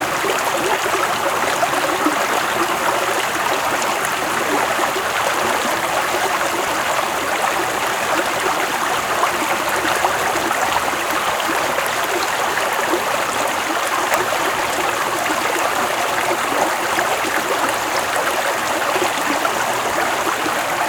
Is something slithering through the grass?
no